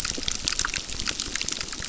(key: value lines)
label: biophony, crackle
recorder: SoundTrap 600